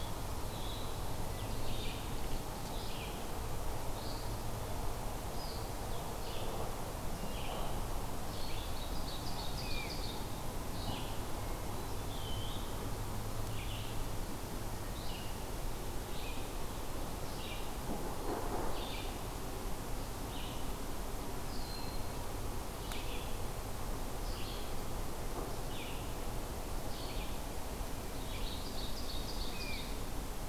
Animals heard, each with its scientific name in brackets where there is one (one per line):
Great Crested Flycatcher (Myiarchus crinitus)
Ovenbird (Seiurus aurocapilla)
Red-eyed Vireo (Vireo olivaceus)
Broad-winged Hawk (Buteo platypterus)
Eastern Wood-Pewee (Contopus virens)